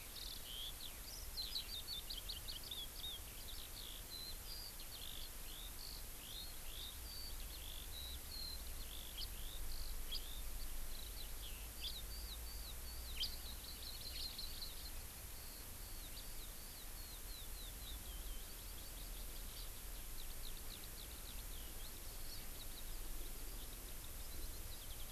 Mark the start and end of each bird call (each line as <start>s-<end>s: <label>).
0.0s-25.1s: Eurasian Skylark (Alauda arvensis)